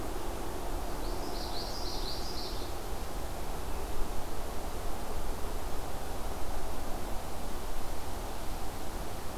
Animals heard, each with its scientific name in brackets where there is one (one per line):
Common Yellowthroat (Geothlypis trichas)